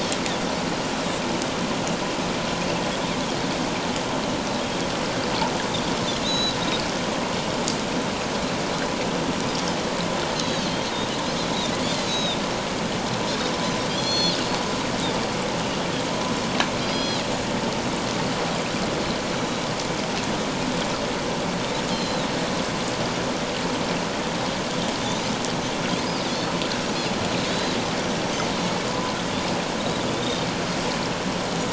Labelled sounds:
6.2	6.6	Pacific white-sided dolphin, 3.6 to 6.7 kHz
10.4	10.7	Pacific white-sided dolphin, 3.7 to 6.7 kHz
11.9	12.4	Pacific white-sided dolphin, 3.5 to 6.6 kHz
13.9	14.4	Pacific white-sided dolphin, 3.2 to 6.1 kHz
16.8	17.2	Pacific white-sided dolphin, 3.2 to 5.9 kHz
19.3	19.7	Pacific white-sided dolphin, 3.8 to 4.0 kHz
21.9	22.3	Pacific white-sided dolphin, 3.0 to 5.3 kHz
27.5	27.8	Pacific white-sided dolphin, 3.7 to 4.1 kHz
29.8	30.5	Pacific white-sided dolphin, 3.4 to 4.0 kHz

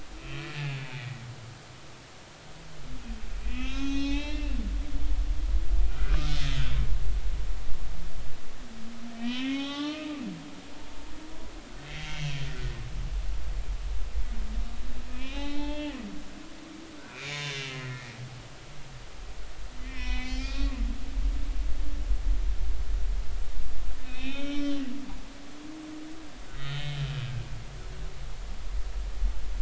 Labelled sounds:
0.2	0.8	humpback whale, 1.6 to 2.8 kHz
3.3	4.5	humpback whale, 0.80 to 6.3 kHz
5.1	6.2	humpback whale, 1.2 to 2.1 kHz
9.1	10.2	humpback whale, 0.80 to 3.9 kHz
12.5	12.7	humpback whale, 1.3 to 1.5 kHz
15.2	18.1	humpback whale, 0.80 to 6.7 kHz
19.8	20.8	humpback whale, 0.80 to 5.7 kHz
24.0	25.7	humpback whale, 1.3 to 5.7 kHz
26.5	27.0	humpback whale, 1.8 to 3.9 kHz

